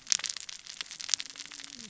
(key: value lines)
label: biophony, cascading saw
recorder: SoundTrap 600 or HydroMoth